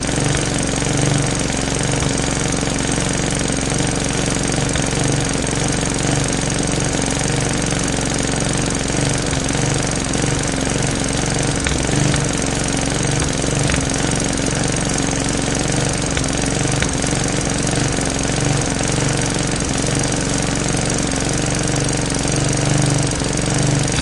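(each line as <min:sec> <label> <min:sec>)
0:00.0 A large construction machine is working loudly and repeatedly. 0:24.0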